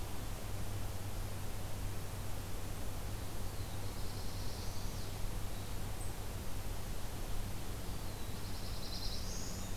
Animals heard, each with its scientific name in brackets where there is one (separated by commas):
Black-throated Blue Warbler (Setophaga caerulescens)